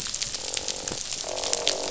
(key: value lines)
label: biophony, croak
recorder: SoundTrap 500